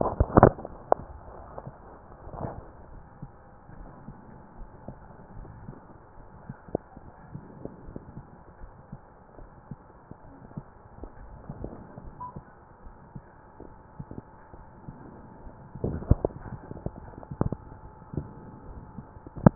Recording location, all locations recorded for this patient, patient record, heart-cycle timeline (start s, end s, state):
aortic valve (AV)
aortic valve (AV)+tricuspid valve (TV)+mitral valve (MV)
#Age: nan
#Sex: Female
#Height: nan
#Weight: nan
#Pregnancy status: True
#Murmur: Absent
#Murmur locations: nan
#Most audible location: nan
#Systolic murmur timing: nan
#Systolic murmur shape: nan
#Systolic murmur grading: nan
#Systolic murmur pitch: nan
#Systolic murmur quality: nan
#Diastolic murmur timing: nan
#Diastolic murmur shape: nan
#Diastolic murmur grading: nan
#Diastolic murmur pitch: nan
#Diastolic murmur quality: nan
#Outcome: Normal
#Campaign: 2015 screening campaign
0.00	4.55	unannotated
4.55	4.72	S1
4.72	4.86	systole
4.86	5.00	S2
5.00	5.34	diastole
5.34	5.50	S1
5.50	5.62	systole
5.62	5.78	S2
5.78	6.14	diastole
6.14	6.29	S1
6.29	6.45	systole
6.45	6.57	S2
6.57	6.93	diastole
6.93	7.04	S1
7.04	7.32	systole
7.32	7.44	S2
7.44	7.85	diastole
7.85	8.04	S1
8.04	8.15	systole
8.15	8.28	S2
8.28	8.62	diastole
8.62	8.72	S1
8.72	8.88	systole
8.88	9.00	S2
9.00	9.30	diastole
9.30	9.49	S1
9.49	9.66	systole
9.66	9.79	S2
9.79	10.21	diastole
10.21	10.42	S1
10.42	10.52	systole
10.52	10.66	S2
10.66	10.98	diastole
10.98	11.10	S1
11.10	19.55	unannotated